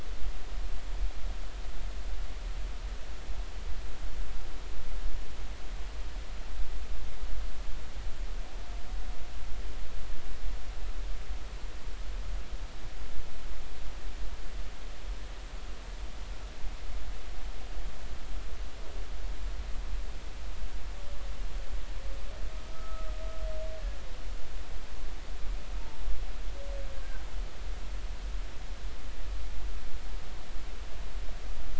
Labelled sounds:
22.7	23.1	humpback whale, 1.2 to 1.4 kHz

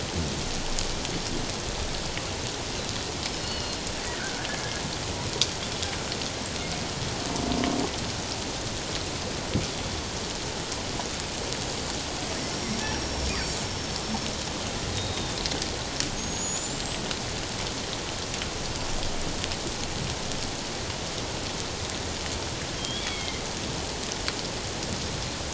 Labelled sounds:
3.4	4.5	killer whale, northern resident, G clan, 1.4 to 4.5 kHz
12.5	14.3	killer whale, northern resident, G clan, 5.3 to 5.7 kHz
15.0	15.4	killer whale, northern resident, G clan, 3.6 to 3.9 kHz
16.2	17.0	killer whale, northern resident, G clan, 6.4 to 7.8 kHz
22.8	23.4	killer whale, northern resident, G clan, 2.0 to 3.5 kHz

